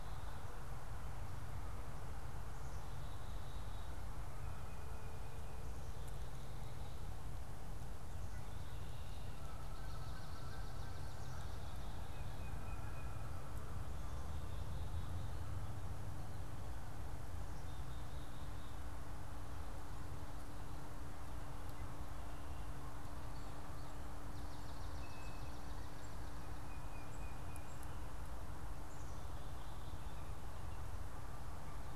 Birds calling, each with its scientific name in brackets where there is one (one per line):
Blue Jay (Cyanocitta cristata)
Tufted Titmouse (Baeolophus bicolor)
Swamp Sparrow (Melospiza georgiana)
Canada Goose (Branta canadensis)
Black-capped Chickadee (Poecile atricapillus)